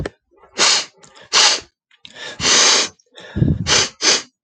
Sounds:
Sniff